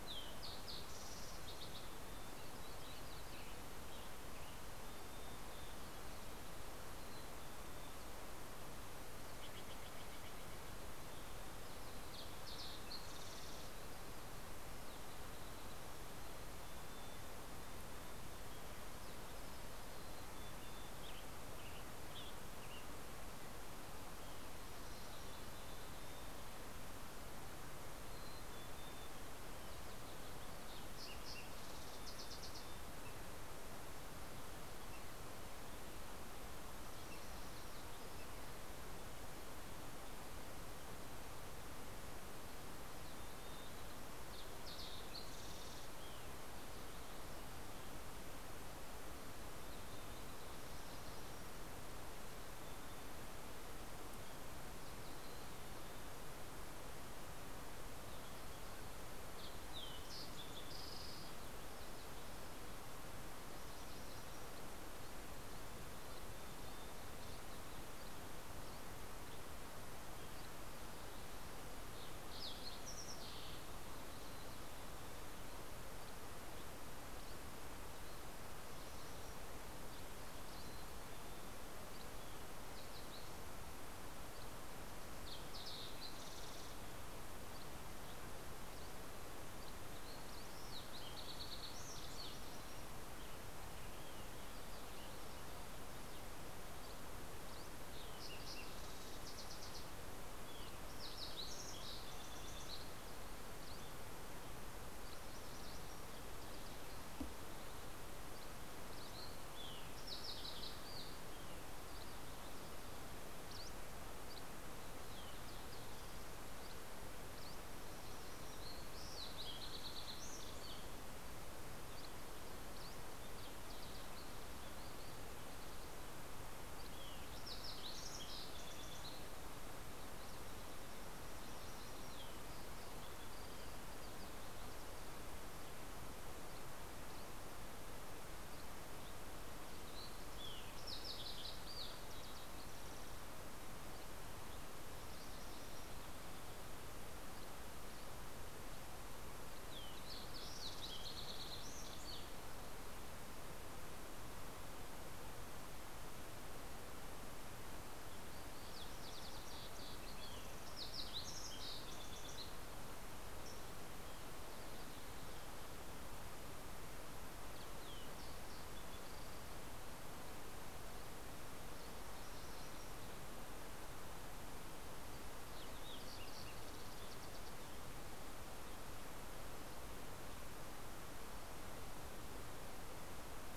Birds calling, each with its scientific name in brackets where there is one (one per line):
Dusky Flycatcher (Empidonax oberholseri)
Fox Sparrow (Passerella iliaca)
Green-tailed Towhee (Pipilo chlorurus)
Western Tanager (Piranga ludoviciana)
Mountain Chickadee (Poecile gambeli)
MacGillivray's Warbler (Geothlypis tolmiei)
Steller's Jay (Cyanocitta stelleri)
Olive-sided Flycatcher (Contopus cooperi)